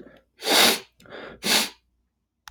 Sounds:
Sniff